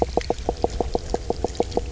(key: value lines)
label: biophony, knock croak
recorder: SoundTrap 300